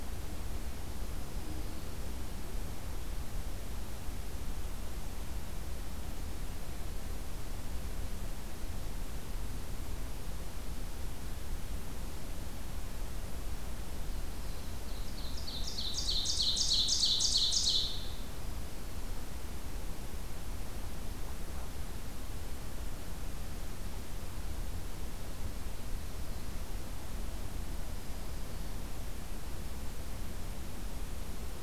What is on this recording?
Black-throated Green Warbler, Ovenbird